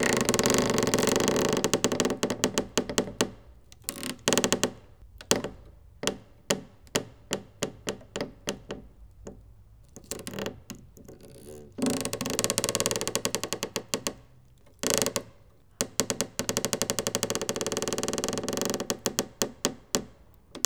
is the sound random and not rhythmic?
yes